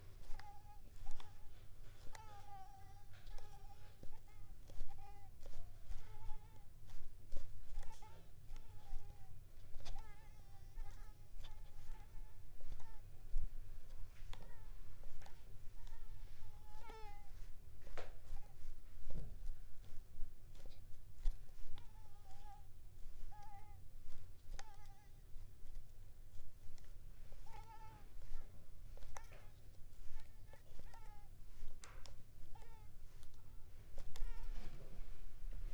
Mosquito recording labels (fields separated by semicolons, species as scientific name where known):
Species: Mansonia africanus; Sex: female; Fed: unfed; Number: one; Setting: cup